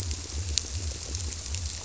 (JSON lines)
{"label": "biophony", "recorder": "SoundTrap 300"}